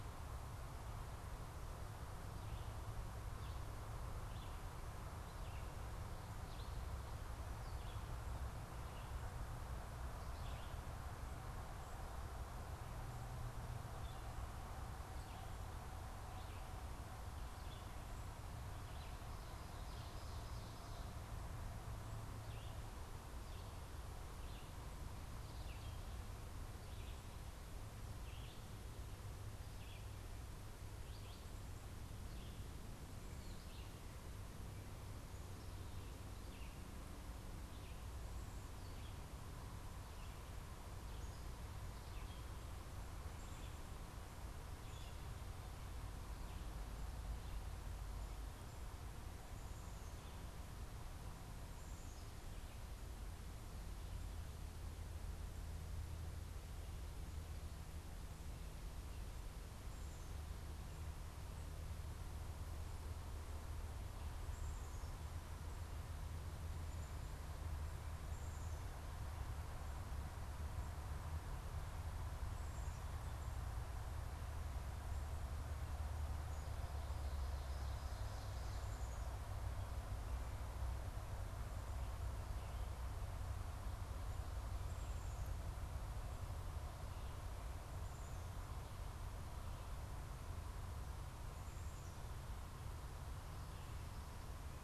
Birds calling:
Red-eyed Vireo (Vireo olivaceus)
Black-capped Chickadee (Poecile atricapillus)

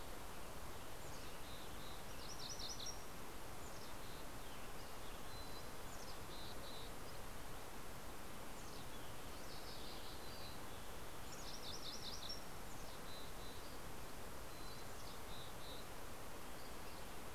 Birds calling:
MacGillivray's Warbler (Geothlypis tolmiei)
Dusky Flycatcher (Empidonax oberholseri)
Mountain Chickadee (Poecile gambeli)
Western Tanager (Piranga ludoviciana)

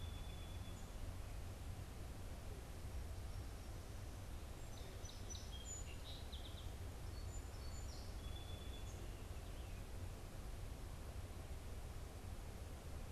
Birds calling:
Song Sparrow (Melospiza melodia)

